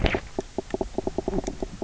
{"label": "biophony, knock croak", "recorder": "SoundTrap 300"}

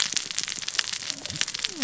{"label": "biophony, cascading saw", "recorder": "SoundTrap 600 or HydroMoth"}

